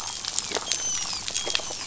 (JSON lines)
{"label": "biophony, dolphin", "recorder": "SoundTrap 500"}